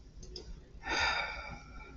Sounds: Sigh